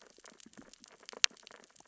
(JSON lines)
{"label": "biophony, sea urchins (Echinidae)", "recorder": "SoundTrap 600 or HydroMoth"}